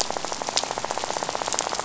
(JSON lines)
{"label": "biophony, rattle", "recorder": "SoundTrap 500"}